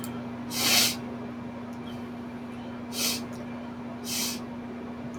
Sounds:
Sniff